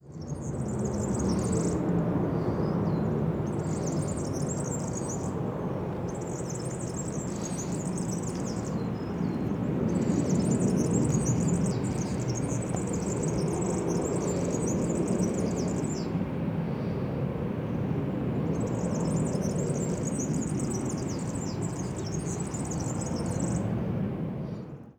Is someone talking?
no